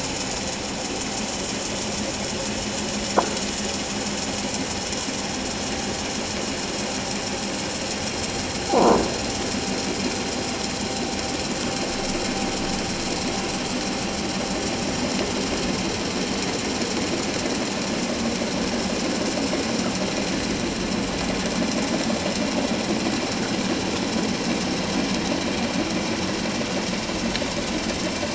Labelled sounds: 8.7	9.0	croaking sound likely from a nearby submerged object, 0.78 to 1.1 kHz

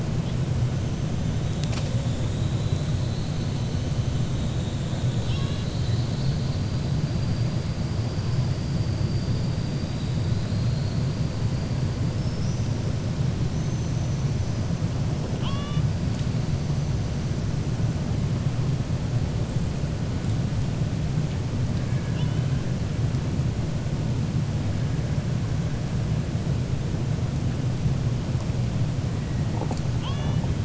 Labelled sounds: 5.1	6.4	killer whale, 1.1 to 5.5 kHz
13.5	14.2	killer whale, 5.6 to 6.3 kHz
15.3	15.9	killer whale, 0.90 to 5.6 kHz
21.8	22.5	killer whale, 1.0 to 3.6 kHz

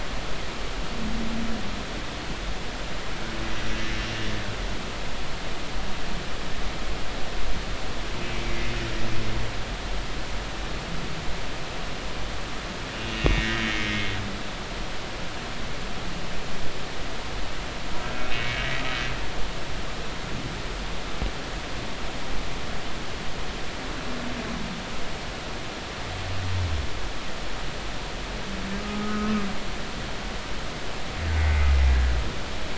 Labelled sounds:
8.2	8.6	humpback whale, 2.1 to 2.4 kHz
13.1	14.1	humpback whale, 1.5 to 2.9 kHz
18.1	18.6	humpback whale, 2.1 to 2.6 kHz
28.8	29.3	humpback whale, 1.2 to 1.3 kHz
31.4	31.7	humpback whale, 2.0 to 2.2 kHz

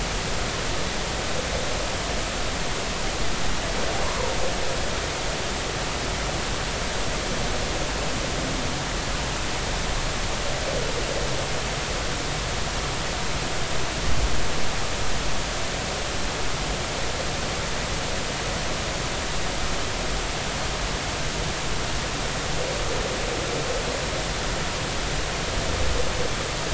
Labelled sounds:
4.0	4.3	humpback whale, 0.86 to 1.2 kHz

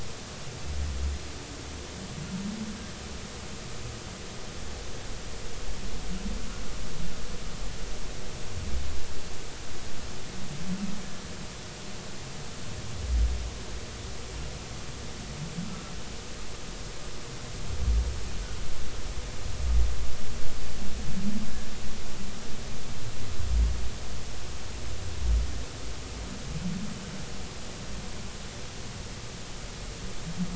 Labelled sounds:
18.4	18.6	humpback whale, 1.4 to 1.6 kHz

